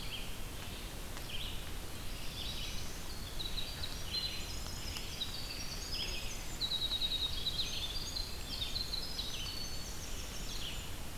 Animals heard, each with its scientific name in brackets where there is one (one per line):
Winter Wren (Troglodytes hiemalis)
Red-eyed Vireo (Vireo olivaceus)
Black-throated Blue Warbler (Setophaga caerulescens)